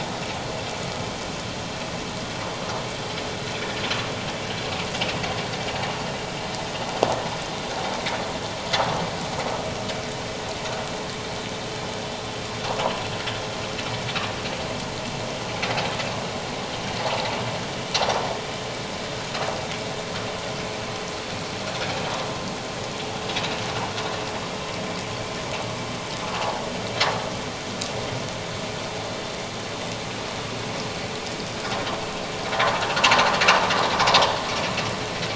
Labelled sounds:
17.1	17.3	vessel noise, 0.78 to 1.0 kHz

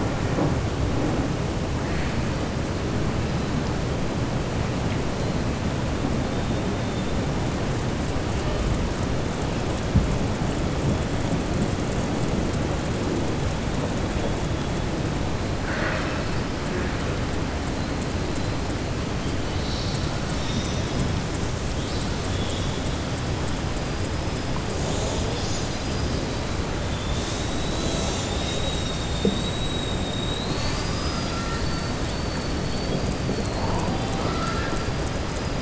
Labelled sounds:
33.9	34.8	killer whale, southern resident, 0.49 to 5.2 kHz

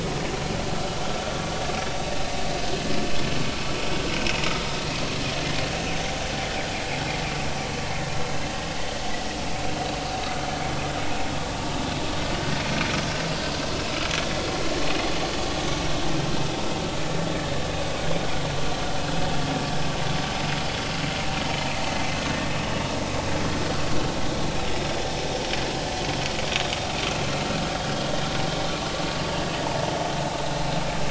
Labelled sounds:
13.3	13.6	vessel noise, 4.6 to 4.9 kHz

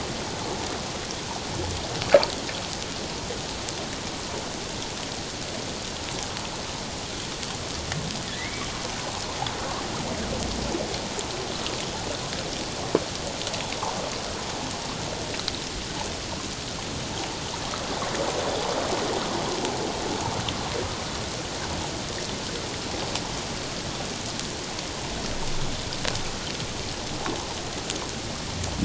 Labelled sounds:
8.3	8.7	humpback whale, 1.7 to 2.3 kHz

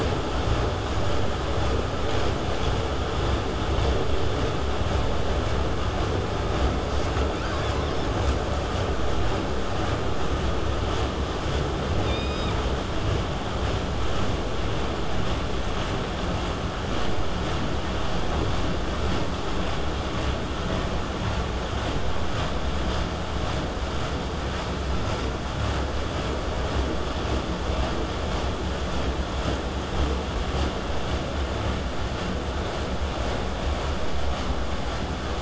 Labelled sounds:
6.9	8.3	killer whale, southern resident, call S10, 1.8 to 8.0 kHz
12.0	12.6	killer whale, southern resident, K pod, call S16, 2.2 to 7.7 kHz
14.0	14.4	killer whale, southern resident, buzz, 0.35 to 8.0 kHz
23.9	28.9	vessel noise, 0 to 8.0 kHz

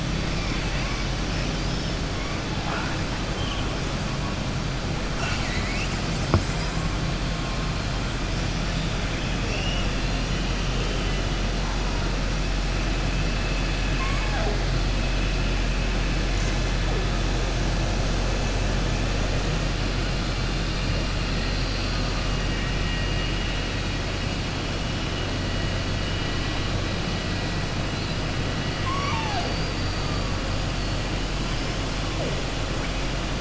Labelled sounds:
9.1	9.9	killer whale, southern resident, 2.2 to 3.4 kHz
28.7	30.2	killer whale, southern resident, 0.66 to 6.0 kHz

